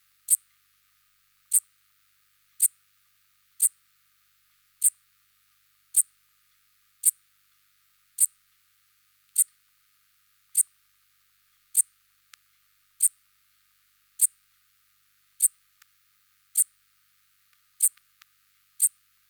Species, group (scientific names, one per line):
Eupholidoptera megastyla
Orthoptera